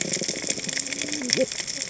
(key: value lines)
label: biophony, cascading saw
recorder: HydroMoth